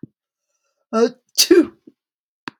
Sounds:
Sneeze